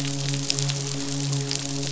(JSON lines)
{"label": "biophony, midshipman", "recorder": "SoundTrap 500"}